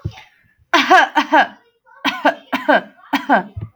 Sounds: Cough